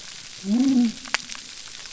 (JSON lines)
{"label": "biophony", "recorder": "SoundTrap 300"}